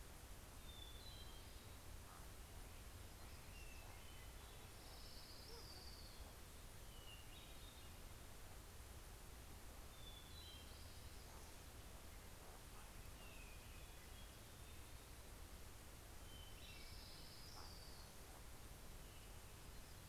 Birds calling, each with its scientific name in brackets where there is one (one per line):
Hermit Thrush (Catharus guttatus)
Common Raven (Corvus corax)
Orange-crowned Warbler (Leiothlypis celata)